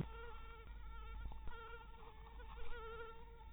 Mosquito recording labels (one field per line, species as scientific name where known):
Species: mosquito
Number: one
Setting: cup